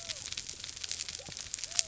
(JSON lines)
{"label": "biophony", "recorder": "SoundTrap 300"}